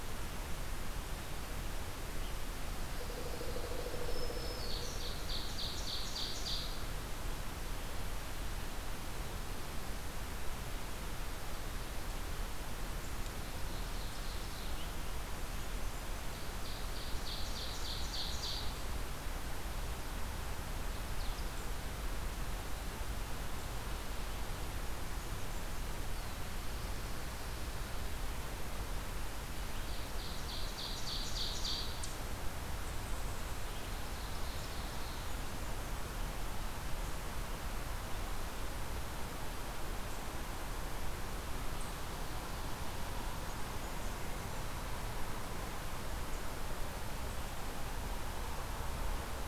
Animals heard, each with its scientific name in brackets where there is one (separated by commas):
Pileated Woodpecker (Dryocopus pileatus), Black-throated Green Warbler (Setophaga virens), Ovenbird (Seiurus aurocapilla)